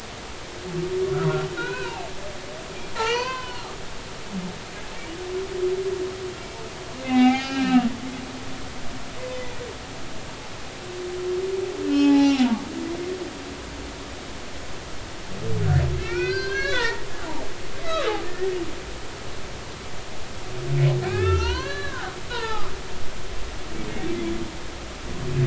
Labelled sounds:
1.6	2.1	humpback whale, 0.80 to 4.1 kHz
2.9	3.7	humpback whale, 0.80 to 4.7 kHz
7.0	8.5	humpback whale, 0.80 to 4.9 kHz
11.9	13.5	humpback whale, 0.80 to 2.6 kHz
16.0	17.0	humpback whale, 0.86 to 5.2 kHz
18.2	18.5	humpback whale, 1.7 to 1.9 kHz
21.0	22.7	humpback whale, 0.80 to 4.9 kHz

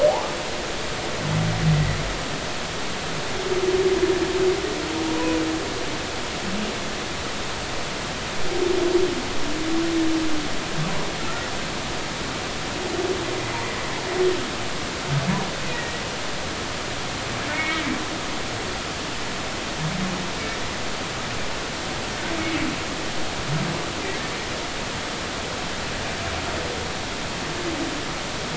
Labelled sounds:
5.1	5.4	humpback whale, 0.93 to 1.1 kHz
15.7	15.9	humpback whale, 1.8 to 2.0 kHz
17.5	17.8	humpback whale, 1.7 to 2.3 kHz

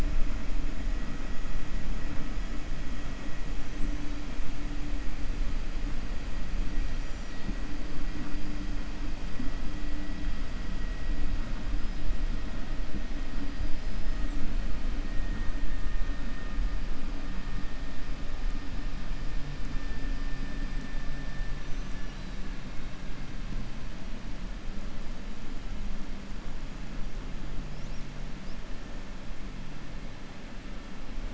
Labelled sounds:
6.9	7.5	killer whale, 3.6 to 7.3 kHz

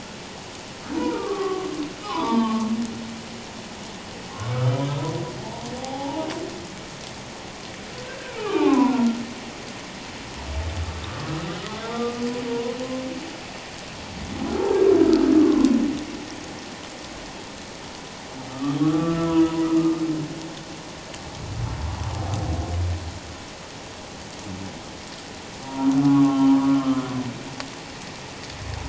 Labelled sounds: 1.1	1.7	humpback whale, 0.78 to 1.3 kHz
2.0	2.7	humpback whale, 0.84 to 3.7 kHz
4.5	4.9	humpback whale, 1.2 to 3.2 kHz
5.4	6.3	humpback whale, 0.78 to 0.97 kHz
8.4	9.2	humpback whale, 0.78 to 2.6 kHz
11.0	11.3	humpback whale, 1.1 to 1.3 kHz
11.6	12.8	humpback whale, 0.91 to 3.7 kHz
14.5	14.8	humpback whale, 1.2 to 1.4 kHz
15.3	15.7	humpback whale, 1.0 to 1.3 kHz
18.5	20.0	humpback whale, 1.1 to 1.4 kHz
25.6	27.1	humpback whale, 0.78 to 1.4 kHz

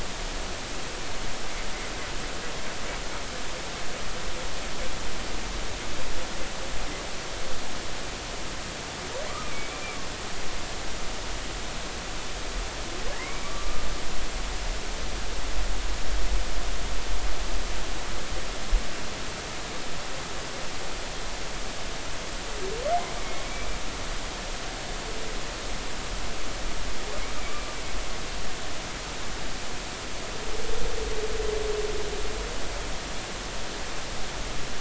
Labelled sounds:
9.3	10.0	humpback whale, 1.1 to 2.5 kHz
13.1	13.8	humpback whale, 1.1 to 2.4 kHz
23.2	23.4	humpback whale, 2.1 to 2.3 kHz

